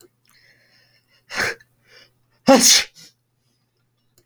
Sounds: Sneeze